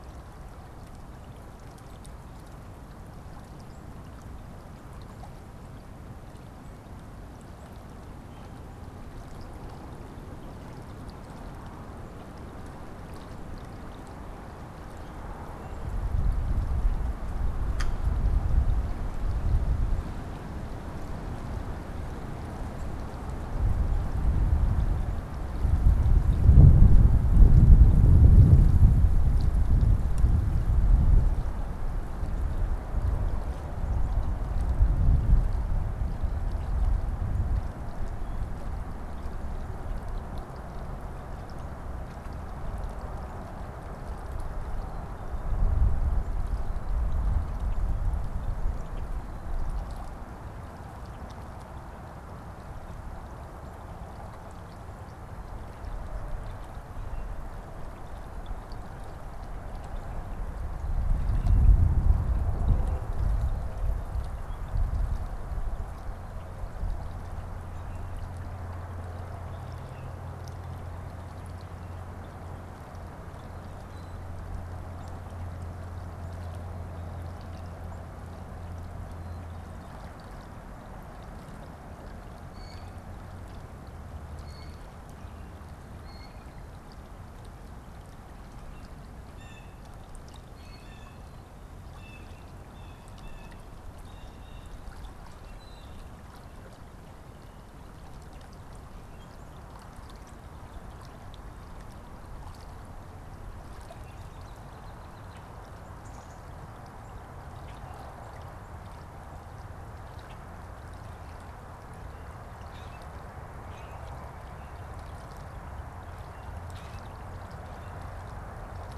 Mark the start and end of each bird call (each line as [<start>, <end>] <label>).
[82.30, 96.20] Blue Jay (Cyanocitta cristata)
[105.20, 105.50] Common Grackle (Quiscalus quiscula)
[105.80, 106.90] Black-capped Chickadee (Poecile atricapillus)
[107.50, 107.80] Common Grackle (Quiscalus quiscula)
[110.20, 110.50] Common Grackle (Quiscalus quiscula)
[112.50, 114.30] Common Grackle (Quiscalus quiscula)
[116.60, 117.10] Common Grackle (Quiscalus quiscula)